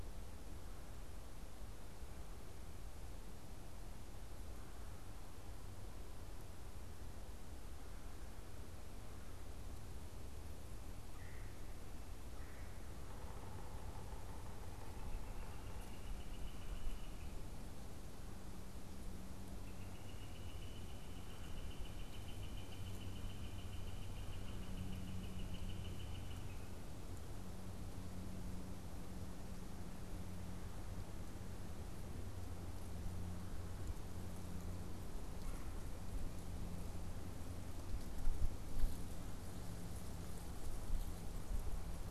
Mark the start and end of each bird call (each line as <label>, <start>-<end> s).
unidentified bird, 10.8-12.8 s
Yellow-bellied Sapsucker (Sphyrapicus varius), 12.9-16.3 s
Northern Flicker (Colaptes auratus), 14.3-17.4 s
Northern Flicker (Colaptes auratus), 19.5-26.8 s
Red-bellied Woodpecker (Melanerpes carolinus), 35.4-36.1 s